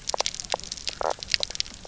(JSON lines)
{"label": "biophony, knock croak", "recorder": "SoundTrap 300"}